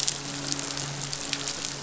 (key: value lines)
label: biophony, midshipman
recorder: SoundTrap 500